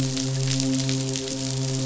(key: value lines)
label: biophony, midshipman
recorder: SoundTrap 500